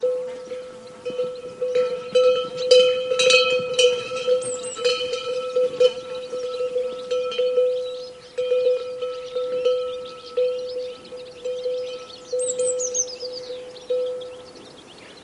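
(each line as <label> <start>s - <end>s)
A variety of birds chirp happily. 0.0s - 15.2s
Continuous white noise in the background. 0.0s - 15.2s
Cowbells ring, producing a melodic, rhythmic, and joyful metallic tune. 0.0s - 15.2s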